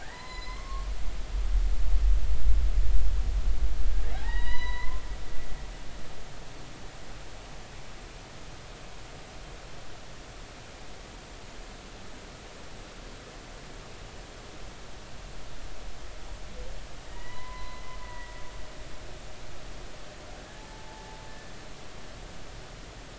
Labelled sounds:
0.0	0.9	humpback whale, 0.83 to 5.1 kHz
4.1	5.0	humpback whale, 0.80 to 5.0 kHz
17.1	18.3	humpback whale, 0.90 to 4.1 kHz
20.7	21.2	humpback whale, 0.80 to 0.93 kHz

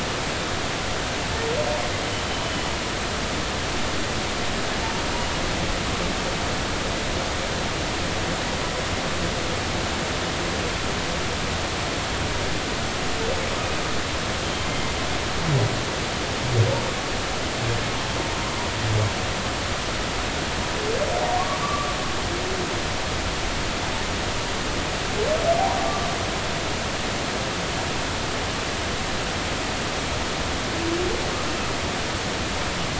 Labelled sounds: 2.1	2.4	humpback whale, 3.0 to 3.1 kHz
21.6	21.9	humpback whale, 1.1 to 1.3 kHz

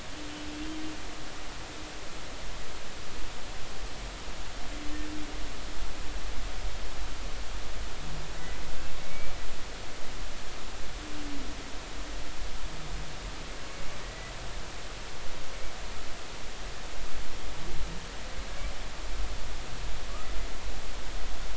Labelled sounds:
9.0	9.4	humpback whale, 2.2 to 2.4 kHz
14.0	14.3	humpback whale, 1.9 to 2.0 kHz

